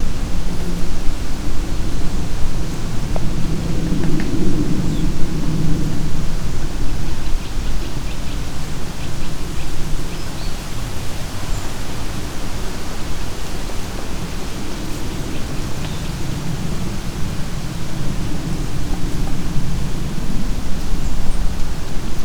What animal is heard?
bird